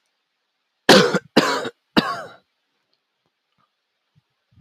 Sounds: Cough